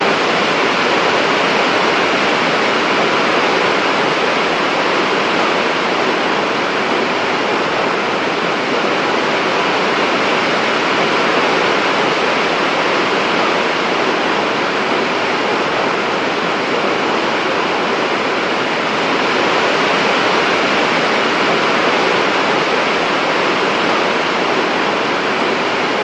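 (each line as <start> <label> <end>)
0.0 Heavy rain falls on a roof. 26.0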